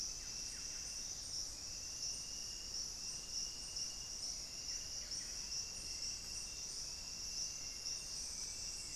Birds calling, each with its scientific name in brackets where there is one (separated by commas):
Plumbeous Pigeon (Patagioenas plumbea), Buff-breasted Wren (Cantorchilus leucotis), Hauxwell's Thrush (Turdus hauxwelli)